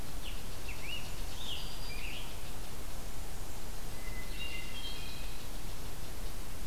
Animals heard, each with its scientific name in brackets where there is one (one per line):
Scarlet Tanager (Piranga olivacea)
Hermit Thrush (Catharus guttatus)
unknown mammal